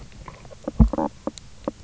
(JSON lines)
{"label": "biophony, knock croak", "recorder": "SoundTrap 300"}